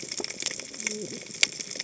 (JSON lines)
{"label": "biophony, cascading saw", "recorder": "HydroMoth"}